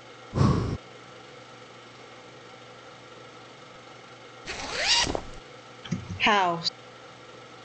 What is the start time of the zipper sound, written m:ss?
0:04